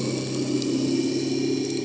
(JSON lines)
{"label": "anthrophony, boat engine", "recorder": "HydroMoth"}